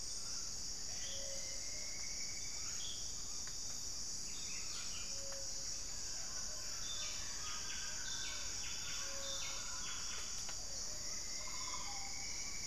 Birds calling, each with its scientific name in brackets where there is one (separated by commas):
Plumbeous Antbird (Myrmelastes hyperythrus), Gray-fronted Dove (Leptotila rufaxilla), Red-bellied Macaw (Orthopsittaca manilatus), Buff-breasted Wren (Cantorchilus leucotis)